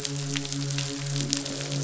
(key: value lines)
label: biophony, midshipman
recorder: SoundTrap 500

label: biophony, croak
recorder: SoundTrap 500